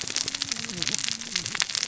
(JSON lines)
{"label": "biophony, cascading saw", "recorder": "SoundTrap 600 or HydroMoth"}